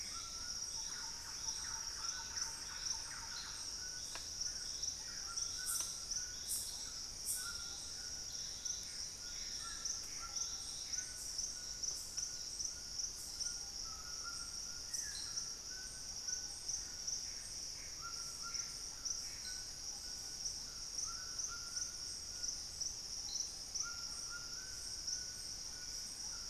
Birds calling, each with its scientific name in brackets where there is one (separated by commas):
Thrush-like Wren (Campylorhynchus turdinus), Plumbeous Pigeon (Patagioenas plumbea), White-throated Toucan (Ramphastos tucanus), Dusky-throated Antshrike (Thamnomanes ardesiacus), Gray Antbird (Cercomacra cinerascens)